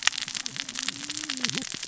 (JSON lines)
{"label": "biophony, cascading saw", "recorder": "SoundTrap 600 or HydroMoth"}